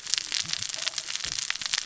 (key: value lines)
label: biophony, cascading saw
recorder: SoundTrap 600 or HydroMoth